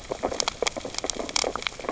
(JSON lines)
{"label": "biophony, sea urchins (Echinidae)", "recorder": "SoundTrap 600 or HydroMoth"}